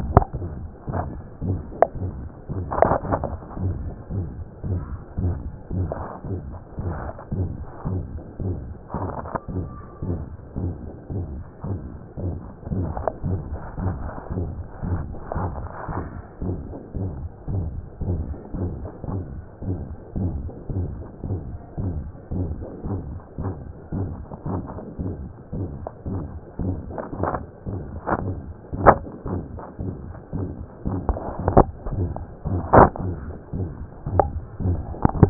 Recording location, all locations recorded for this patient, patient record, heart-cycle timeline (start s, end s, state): pulmonary valve (PV)
aortic valve (AV)+pulmonary valve (PV)+tricuspid valve (TV)+mitral valve (MV)
#Age: Child
#Sex: Female
#Height: 144.0 cm
#Weight: 38.7 kg
#Pregnancy status: False
#Murmur: Present
#Murmur locations: aortic valve (AV)+mitral valve (MV)+pulmonary valve (PV)+tricuspid valve (TV)
#Most audible location: pulmonary valve (PV)
#Systolic murmur timing: Mid-systolic
#Systolic murmur shape: Diamond
#Systolic murmur grading: III/VI or higher
#Systolic murmur pitch: Medium
#Systolic murmur quality: Blowing
#Diastolic murmur timing: nan
#Diastolic murmur shape: nan
#Diastolic murmur grading: nan
#Diastolic murmur pitch: nan
#Diastolic murmur quality: nan
#Outcome: Abnormal
#Campaign: 2014 screening campaign
0.00	0.16	S2
0.16	0.40	diastole
0.40	0.52	S1
0.52	0.60	systole
0.60	0.70	S2
0.70	0.94	diastole
0.94	1.06	S1
1.06	1.14	systole
1.14	1.22	S2
1.22	1.44	diastole
1.44	1.58	S1
1.58	1.64	systole
1.64	1.74	S2
1.74	2.00	diastole
2.00	2.12	S1
2.12	2.20	systole
2.20	2.30	S2
2.30	2.52	diastole
2.52	2.66	S1
2.66	2.74	systole
2.74	2.84	S2
2.84	3.08	diastole
3.08	3.20	S1
3.20	3.26	systole
3.26	3.38	S2
3.38	3.62	diastole
3.62	3.76	S1
3.76	3.82	systole
3.82	3.92	S2
3.92	4.14	diastole
4.14	4.28	S1
4.28	4.34	systole
4.34	4.42	S2
4.42	4.66	diastole
4.66	4.82	S1
4.82	4.90	systole
4.90	4.98	S2
4.98	5.22	diastole
5.22	5.38	S1
5.38	5.44	systole
5.44	5.52	S2
5.52	5.74	diastole
5.74	5.90	S1
5.90	5.98	systole
5.98	6.06	S2
6.06	6.30	diastole
6.30	6.42	S1
6.42	6.50	systole
6.50	6.60	S2
6.60	6.84	diastole
6.84	6.98	S1
6.98	7.04	systole
7.04	7.12	S2
7.12	7.38	diastole
7.38	7.52	S1
7.52	7.58	systole
7.58	7.66	S2
7.66	7.90	diastole
7.90	8.04	S1
8.04	8.12	systole
8.12	8.20	S2
8.20	8.44	diastole
8.44	8.58	S1
8.58	8.66	systole
8.66	8.76	S2
8.76	9.00	diastole
9.00	9.12	S1
9.12	9.22	systole
9.22	9.30	S2
9.30	9.54	diastole
9.54	9.66	S1
9.66	9.72	systole
9.72	9.80	S2
9.80	10.04	diastole
10.04	10.18	S1
10.18	10.28	systole
10.28	10.38	S2
10.38	10.62	diastole
10.62	10.74	S1
10.74	10.82	systole
10.82	10.90	S2
10.90	11.14	diastole
11.14	11.26	S1
11.26	11.32	systole
11.32	11.42	S2
11.42	11.66	diastole
11.66	11.78	S1
11.78	11.86	systole
11.86	11.96	S2
11.96	12.22	diastole
12.22	12.36	S1
12.36	12.44	systole
12.44	12.52	S2
12.52	12.76	diastole
12.76	12.88	S1
12.88	12.94	systole
12.94	13.04	S2
13.04	13.26	diastole
13.26	13.42	S1
13.42	13.50	systole
13.50	13.60	S2
13.60	13.84	diastole
13.84	13.98	S1
13.98	14.04	systole
14.04	14.12	S2
14.12	14.36	diastole
14.36	14.50	S1
14.50	14.56	systole
14.56	14.64	S2
14.64	14.88	diastole
14.88	15.04	S1
15.04	15.08	systole
15.08	15.16	S2
15.16	15.40	diastole
15.40	15.52	S1
15.52	15.60	systole
15.60	15.70	S2
15.70	15.94	diastole
15.94	16.06	S1
16.06	16.14	systole
16.14	16.22	S2
16.22	16.46	diastole
16.46	16.58	S1
16.58	16.66	systole
16.66	16.76	S2
16.76	17.00	diastole
17.00	17.12	S1
17.12	17.20	systole
17.20	17.30	S2
17.30	17.52	diastole
17.52	17.68	S1
17.68	17.74	systole
17.74	17.82	S2
17.82	18.06	diastole
18.06	18.24	S1
18.24	18.30	systole
18.30	18.38	S2
18.38	18.58	diastole
18.58	18.72	S1
18.72	18.80	systole
18.80	18.90	S2
18.90	19.12	diastole
19.12	19.24	S1
19.24	19.32	systole
19.32	19.42	S2
19.42	19.66	diastole
19.66	19.78	S1
19.78	19.86	systole
19.86	19.96	S2
19.96	20.18	diastole
20.18	20.32	S1
20.32	20.40	systole
20.40	20.50	S2
20.50	20.74	diastole
20.74	20.88	S1
20.88	20.94	systole
20.94	21.04	S2
21.04	21.28	diastole
21.28	21.40	S1
21.40	21.48	systole
21.48	21.56	S2
21.56	21.80	diastole
21.80	21.94	S1
21.94	22.04	systole
22.04	22.12	S2
22.12	22.36	diastole
22.36	22.52	S1
22.52	22.58	systole
22.58	22.66	S2
22.66	22.90	diastole
22.90	23.02	S1
23.02	23.10	systole
23.10	23.20	S2
23.20	23.44	diastole
23.44	23.54	S1
23.54	23.62	systole
23.62	23.70	S2
23.70	23.94	diastole
23.94	24.08	S1
24.08	24.14	systole
24.14	24.22	S2
24.22	24.46	diastole
24.46	24.60	S1
24.60	24.66	systole
24.66	24.76	S2
24.76	25.00	diastole
25.00	25.14	S1
25.14	25.20	systole
25.20	25.30	S2
25.30	25.54	diastole
25.54	25.68	S1
25.68	25.76	systole
25.76	25.84	S2
25.84	26.08	diastole
26.08	26.22	S1
26.22	26.32	systole
26.32	26.40	S2
26.40	26.64	diastole
26.64	26.76	S1
26.76	26.84	systole
26.84	26.94	S2
26.94	27.18	diastole
27.18	27.28	S1
27.28	27.34	systole
27.34	27.44	S2
27.44	27.68	diastole
27.68	27.80	S1
27.80	27.88	systole
27.88	27.98	S2
27.98	28.24	diastole
28.24	28.36	S1
28.36	28.44	systole
28.44	28.54	S2
28.54	28.80	diastole
28.80	28.94	S1
28.94	29.00	systole
29.00	29.08	S2
29.08	29.30	diastole
29.30	29.42	S1
29.42	29.50	systole
29.50	29.60	S2
29.60	29.84	diastole
29.84	29.96	S1
29.96	30.02	systole
30.02	30.10	S2
30.10	30.34	diastole
30.34	30.48	S1
30.48	30.54	systole
30.54	30.62	S2
30.62	30.86	diastole
30.86	31.02	S1
31.02	31.06	systole
31.06	31.20	S2
31.20	31.44	diastole
31.44	31.58	S1
31.58	31.66	systole
31.66	31.74	S2
31.74	31.96	diastole
31.96	32.12	S1
32.12	32.18	systole
32.18	32.26	S2
32.26	32.50	diastole
32.50	32.64	S1
32.64	32.74	systole
32.74	32.90	S2
32.90	33.04	diastole
33.04	33.16	S1
33.16	33.24	systole
33.24	33.34	S2
33.34	33.58	diastole
33.58	33.70	S1
33.70	33.78	systole
33.78	33.88	S2
33.88	34.12	diastole
34.12	34.26	S1
34.26	34.34	systole
34.34	34.44	S2
34.44	34.64	diastole
34.64	34.80	S1
34.80	34.88	systole
34.88	34.98	S2
34.98	35.18	diastole
35.18	35.30	S1